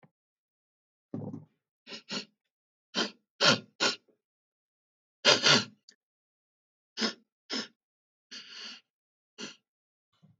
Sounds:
Sniff